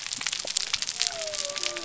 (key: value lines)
label: biophony
recorder: SoundTrap 300